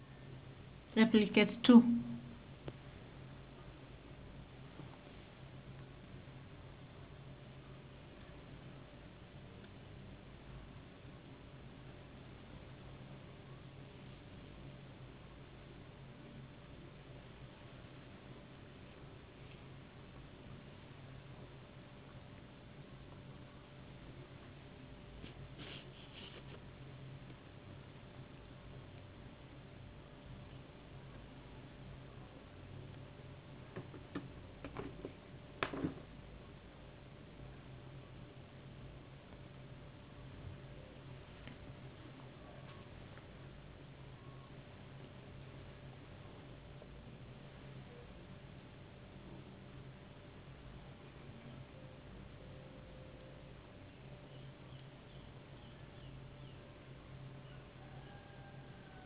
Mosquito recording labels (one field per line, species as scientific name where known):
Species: no mosquito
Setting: insect culture